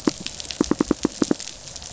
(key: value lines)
label: biophony, pulse
recorder: SoundTrap 500